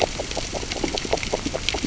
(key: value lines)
label: biophony, grazing
recorder: SoundTrap 600 or HydroMoth